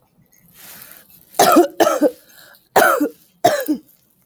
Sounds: Cough